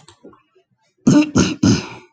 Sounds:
Throat clearing